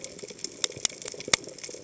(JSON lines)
{"label": "biophony, chatter", "recorder": "HydroMoth"}